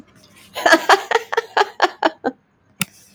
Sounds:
Laughter